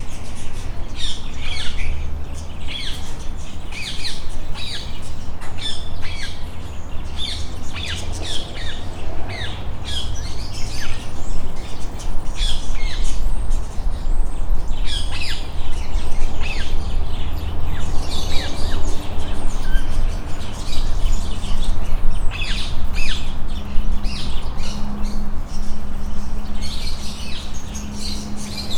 are the birds silent?
no